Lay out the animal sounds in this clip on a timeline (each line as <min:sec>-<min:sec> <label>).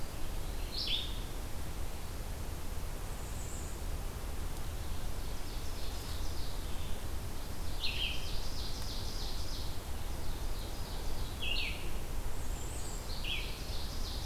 0:00.0-0:00.9 Eastern Wood-Pewee (Contopus virens)
0:00.5-0:14.3 Blue-headed Vireo (Vireo solitarius)
0:02.9-0:03.8 Bay-breasted Warbler (Setophaga castanea)
0:05.0-0:06.4 Ovenbird (Seiurus aurocapilla)
0:07.2-0:11.5 Ovenbird (Seiurus aurocapilla)
0:12.2-0:13.1 Bay-breasted Warbler (Setophaga castanea)
0:13.4-0:14.3 Ovenbird (Seiurus aurocapilla)